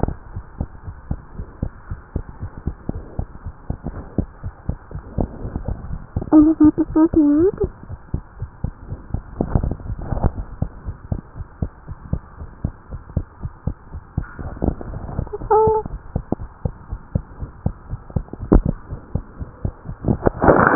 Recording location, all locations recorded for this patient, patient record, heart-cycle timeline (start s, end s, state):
pulmonary valve (PV)
aortic valve (AV)+pulmonary valve (PV)+tricuspid valve (TV)+mitral valve (MV)
#Age: Child
#Sex: Male
#Height: 108.0 cm
#Weight: 19.0 kg
#Pregnancy status: False
#Murmur: Absent
#Murmur locations: nan
#Most audible location: nan
#Systolic murmur timing: nan
#Systolic murmur shape: nan
#Systolic murmur grading: nan
#Systolic murmur pitch: nan
#Systolic murmur quality: nan
#Diastolic murmur timing: nan
#Diastolic murmur shape: nan
#Diastolic murmur grading: nan
#Diastolic murmur pitch: nan
#Diastolic murmur quality: nan
#Outcome: Abnormal
#Campaign: 2015 screening campaign
0.00	10.83	unannotated
10.83	10.96	S1
10.96	11.08	systole
11.08	11.20	S2
11.20	11.35	diastole
11.35	11.47	S1
11.47	11.58	systole
11.58	11.70	S2
11.70	11.87	diastole
11.87	11.97	S1
11.97	12.09	systole
12.09	12.21	S2
12.21	12.37	diastole
12.37	12.50	S1
12.50	12.61	systole
12.61	12.73	S2
12.73	12.89	diastole
12.89	13.00	S1
13.00	13.14	systole
13.14	13.25	S2
13.25	13.40	diastole
13.40	13.52	S1
13.52	13.64	systole
13.64	13.75	S2
13.75	13.91	diastole
13.91	14.02	S1
14.02	14.15	systole
14.15	14.26	S2
14.26	16.38	unannotated
16.38	16.49	S1
16.49	16.61	systole
16.61	16.74	S2
16.74	16.88	diastole
16.88	16.98	S1
16.98	17.11	systole
17.11	17.23	S2
17.23	17.39	diastole
17.39	17.48	S1
17.48	17.61	systole
17.61	17.74	S2
17.74	17.86	diastole
17.86	17.98	S1
17.98	18.12	systole
18.12	18.24	S2
18.24	18.39	diastole
18.39	18.50	S1
18.50	20.75	unannotated